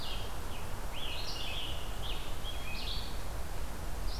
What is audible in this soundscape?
Red-eyed Vireo, Scarlet Tanager